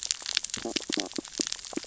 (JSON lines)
{"label": "biophony, stridulation", "recorder": "SoundTrap 600 or HydroMoth"}